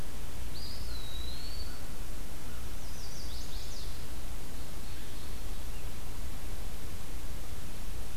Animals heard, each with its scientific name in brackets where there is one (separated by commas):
Eastern Wood-Pewee (Contopus virens), Chestnut-sided Warbler (Setophaga pensylvanica)